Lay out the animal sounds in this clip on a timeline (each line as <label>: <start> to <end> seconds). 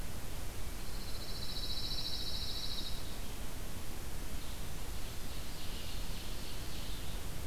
Red-eyed Vireo (Vireo olivaceus): 0.0 to 7.5 seconds
Pine Warbler (Setophaga pinus): 0.9 to 3.0 seconds
Ovenbird (Seiurus aurocapilla): 4.3 to 7.3 seconds